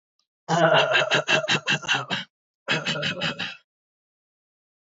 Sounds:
Throat clearing